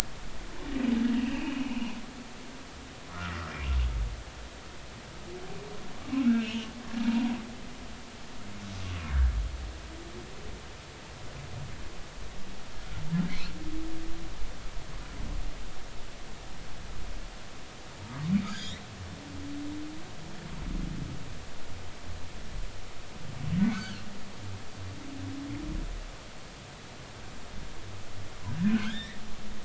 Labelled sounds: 1.2	1.9	humpback whale, 2.4 to 3.0 kHz
3.1	3.5	humpback whale, 1.1 to 1.5 kHz
6.2	6.7	humpback whale, 1.3 to 3.3 kHz
7.1	7.4	humpback whale, 0.90 to 1.0 kHz
18.4	18.8	humpback whale, 3.0 to 6.8 kHz
23.6	24.0	humpback whale, 1.0 to 4.6 kHz
28.6	29.2	humpback whale, 1.3 to 3.9 kHz

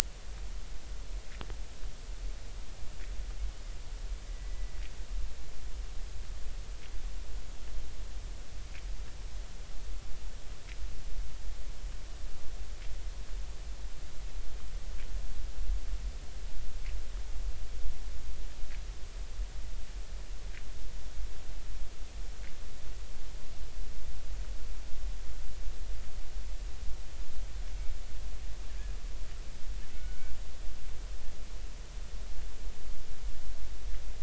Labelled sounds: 4.3	4.7	killer whale, Bigg's (transient), 1.9 to 2.0 kHz
29.9	30.3	killer whale, Bigg's (transient), 1.4 to 1.6 kHz

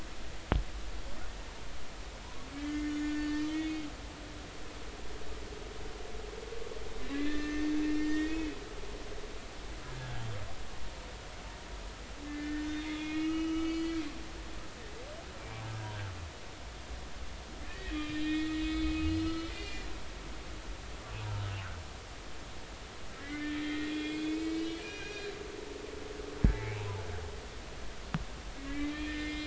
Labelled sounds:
2.6	3.9	humpback whale, 1.5 to 6.9 kHz
7.1	8.5	humpback whale, 1.7 to 2.7 kHz
9.8	10.2	humpback whale, 1.5 to 1.7 kHz
12.3	14.0	humpback whale, 1.2 to 6.2 kHz
15.8	16.1	humpback whale, 1.5 to 1.7 kHz
17.7	19.8	humpback whale, 1.2 to 4.5 kHz
20.5	20.9	humpback whale, 2.0 to 2.1 kHz
23.2	25.4	humpback whale, 1.5 to 5.2 kHz
26.5	27.0	humpback whale, 0.80 to 1.1 kHz
28.7	29.4	humpback whale, 1.8 to 2.5 kHz

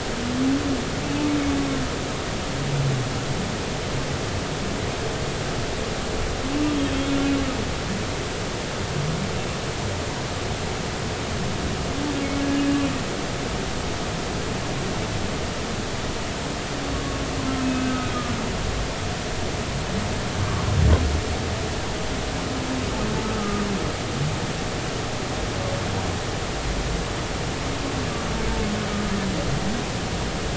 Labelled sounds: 23.2	23.7	humpback whale, 1.2 to 1.3 kHz

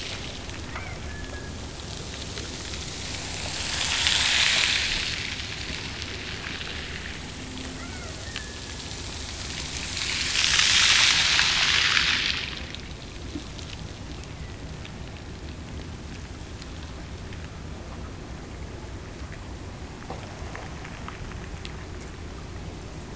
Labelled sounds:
0.6	1.6	killer whale, Bigg's (transient), Gulf of Alaska transient, 0.57 to 2.4 kHz
7.7	8.9	killer whale, Bigg's (transient), Gulf of Alaska transient, 1.1 to 2.4 kHz
13.9	14.9	killer whale, Bigg's (transient), Gulf of Alaska transient, 1.7 to 2.8 kHz

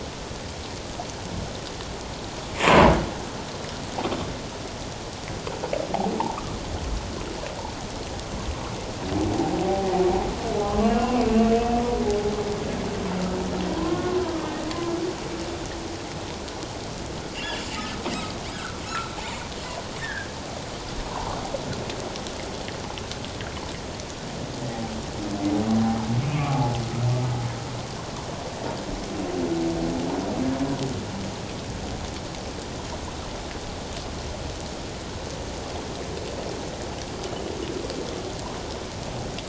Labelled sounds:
10.8	11.2	humpback whale, 2.7 to 2.9 kHz
11.5	11.8	humpback whale, 2.5 to 2.7 kHz
13.8	14.2	humpback whale, 0.97 to 1.1 kHz
17.3	18.0	humpback whale, 1.2 to 3.2 kHz
18.5	18.8	humpback whale, 1.3 to 1.7 kHz
20.0	20.3	humpback whale, 1.5 to 1.9 kHz
21.1	21.4	humpback whale, 0.78 to 1.2 kHz
26.2	26.6	humpback whale, 1.1 to 2.8 kHz

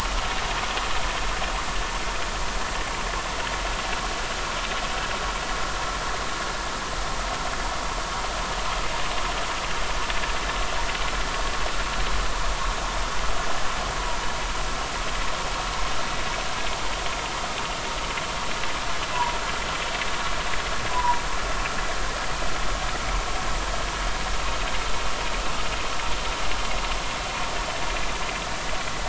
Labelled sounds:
20.9	21.2	humpback whale, 0.90 to 1.1 kHz

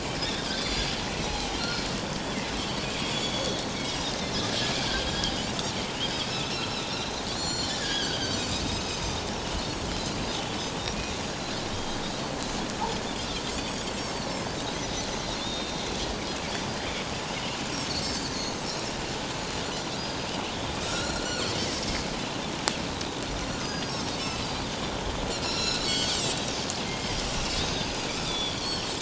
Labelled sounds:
0.2	0.5	Pacific white-sided dolphin, 3.3 to 3.7 kHz
1.1	1.8	Pacific white-sided dolphin, 0.78 to 6.0 kHz
2.6	4.5	Pacific white-sided dolphin, 3.2 to 5.5 kHz
6.2	7.0	Pacific white-sided dolphin, 2.4 to 4.2 kHz
7.3	9.0	Pacific white-sided dolphin, 1.4 to 7.2 kHz
9.6	10.3	Pacific white-sided dolphin, 3.8 to 4.8 kHz
11.7	12.0	Pacific white-sided dolphin, 3.1 to 3.3 kHz
13.5	13.8	Pacific white-sided dolphin, 4.3 to 4.7 kHz
15.4	15.9	Pacific white-sided dolphin, 3.4 to 3.8 kHz
19.9	20.3	Pacific white-sided dolphin, 4.6 to 5.0 kHz
20.8	21.6	Pacific white-sided dolphin, 1.3 to 7.1 kHz
23.6	24.7	Pacific white-sided dolphin, 4.3 to 6.6 kHz
25.3	27.2	Pacific white-sided dolphin, 1.3 to 8.0 kHz
27.6	28.9	Pacific white-sided dolphin, 1.2 to 6.5 kHz

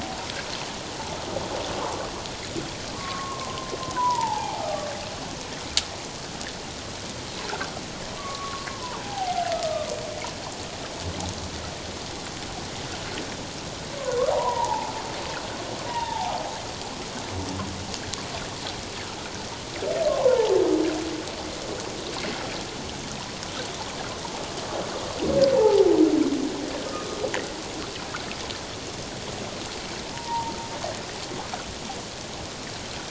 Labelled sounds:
3.0	4.9	humpback whale, 0.78 to 1.3 kHz
8.2	9.9	humpback whale, 0.78 to 1.3 kHz
14.0	14.9	humpback whale, 0.78 to 1.3 kHz
15.9	16.4	humpback whale, 0.78 to 1.0 kHz
20.1	20.6	humpback whale, 0.78 to 1.1 kHz
25.5	25.9	humpback whale, 0.78 to 0.97 kHz
30.1	30.5	humpback whale, 0.88 to 1.0 kHz

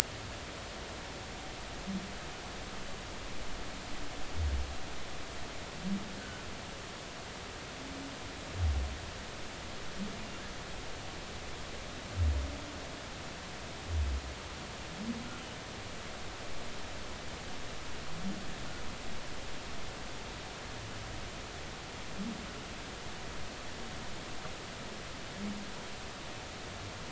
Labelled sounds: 6.2	6.5	humpback whale, 1.4 to 1.6 kHz

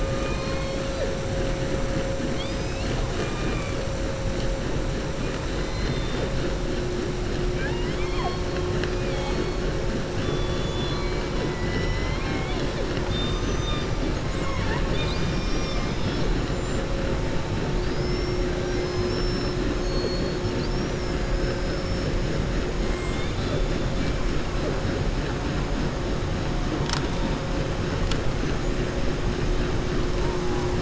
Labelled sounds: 0.0	0.8	killer whale, southern resident, 1.0 to 5.3 kHz
5.5	6.3	killer whale, southern resident, 1.8 to 5.1 kHz
7.5	8.6	killer whale, southern resident, 0.71 to 4.4 kHz
11.9	14.0	killer whale, southern resident, 0.78 to 6.2 kHz
17.7	22.0	killer whale, southern resident, 4.1 to 6.3 kHz
22.9	23.7	killer whale, southern resident, 1.8 to 4.7 kHz

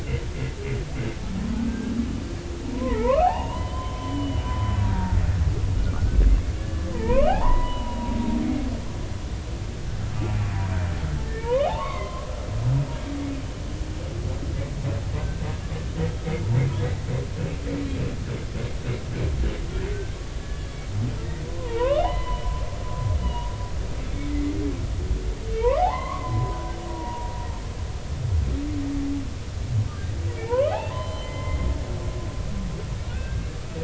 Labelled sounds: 2.7	5.2	humpback whale, 0.80 to 3.2 kHz
6.0	6.2	humpback whale, 1.4 to 1.6 kHz
6.6	8.2	humpback whale, 0.80 to 3.1 kHz
8.4	8.7	humpback whale, 2.0 to 2.3 kHz
11.3	12.3	humpback whale, 0.80 to 3.7 kHz
15.2	15.5	humpback whale, 1.5 to 1.6 kHz
20.4	20.8	humpback whale, 1.7 to 3.5 kHz
21.4	22.5	humpback whale, 0.80 to 3.1 kHz
23.2	23.5	humpback whale, 0.90 to 3.0 kHz
24.3	24.5	humpback whale, 2.0 to 2.1 kHz
25.5	26.6	humpback whale, 0.80 to 2.9 kHz
26.9	27.3	humpback whale, 0.90 to 0.99 kHz
30.3	31.7	humpback whale, 0.80 to 4.2 kHz
33.0	33.4	humpback whale, 1.3 to 1.6 kHz

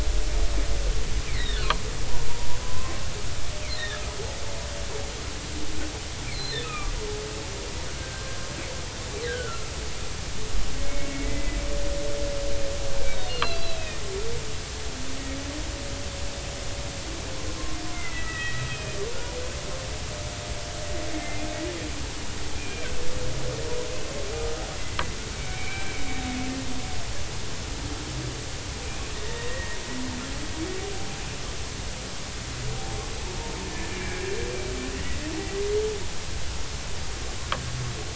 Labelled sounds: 1.3	1.8	humpback whale, 0.93 to 4.5 kHz
2.6	2.9	humpback whale, 0.99 to 1.1 kHz
3.8	4.0	humpback whale, 1.6 to 3.9 kHz
6.3	6.9	humpback whale, 1.1 to 4.4 kHz
8.0	8.3	humpback whale, 1.5 to 1.6 kHz
9.3	9.7	humpback whale, 1.3 to 1.7 kHz
11.1	11.6	humpback whale, 2.0 to 2.4 kHz
13.0	14.0	humpback whale, 1.1 to 4.5 kHz
17.9	19.0	humpback whale, 1.2 to 2.7 kHz
21.1	21.4	humpback whale, 2.0 to 2.2 kHz
22.6	22.9	humpback whale, 2.2 to 2.5 kHz
24.4	26.1	humpback whale, 1.2 to 2.5 kHz
28.9	29.8	humpback whale, 1.8 to 2.6 kHz
33.7	34.2	humpback whale, 1.6 to 2.4 kHz

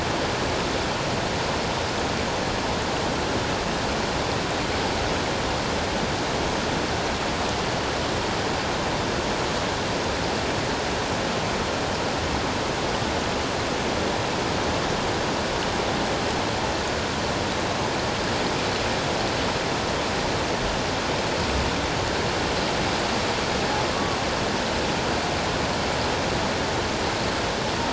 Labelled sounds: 23.9	24.2	humpback whale, 1.0 to 1.2 kHz

